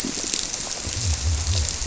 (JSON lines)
{"label": "biophony", "recorder": "SoundTrap 300"}